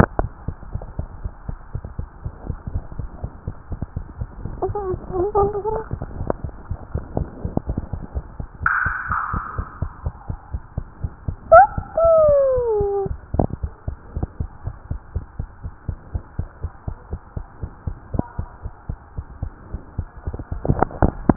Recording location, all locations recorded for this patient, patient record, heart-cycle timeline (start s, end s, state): tricuspid valve (TV)
aortic valve (AV)+pulmonary valve (PV)+tricuspid valve (TV)+mitral valve (MV)
#Age: Child
#Sex: Male
#Height: 108.0 cm
#Weight: 19.0 kg
#Pregnancy status: False
#Murmur: Absent
#Murmur locations: nan
#Most audible location: nan
#Systolic murmur timing: nan
#Systolic murmur shape: nan
#Systolic murmur grading: nan
#Systolic murmur pitch: nan
#Systolic murmur quality: nan
#Diastolic murmur timing: nan
#Diastolic murmur shape: nan
#Diastolic murmur grading: nan
#Diastolic murmur pitch: nan
#Diastolic murmur quality: nan
#Outcome: Abnormal
#Campaign: 2015 screening campaign
0.00	14.63	unannotated
14.63	14.74	S1
14.74	14.86	systole
14.86	15.00	S2
15.00	15.14	diastole
15.14	15.26	S1
15.26	15.38	systole
15.38	15.50	S2
15.50	15.62	diastole
15.62	15.72	S1
15.72	15.84	systole
15.84	15.98	S2
15.98	16.12	diastole
16.12	16.24	S1
16.24	16.34	systole
16.34	16.48	S2
16.48	16.62	diastole
16.62	16.72	S1
16.72	16.87	systole
16.87	16.98	S2
16.98	17.10	diastole
17.10	17.20	S1
17.20	17.32	systole
17.32	17.46	S2
17.46	17.62	diastole
17.62	17.72	S1
17.72	17.86	systole
17.86	17.98	S2
17.98	18.12	diastole
18.12	18.28	S1
18.28	18.38	systole
18.38	18.50	S2
18.50	18.64	diastole
18.64	18.74	S1
18.74	18.88	systole
18.88	19.00	S2
19.00	19.16	diastole
19.16	19.26	S1
19.26	19.38	systole
19.38	19.54	S2
19.54	19.72	diastole
19.72	19.84	S1
19.84	19.94	systole
19.94	20.08	S2
20.08	20.26	diastole
20.26	20.33	S1
20.33	20.50	systole
20.50	20.63	S2
20.63	21.36	unannotated